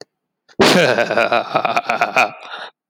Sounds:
Laughter